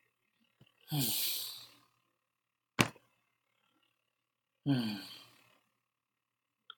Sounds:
Sigh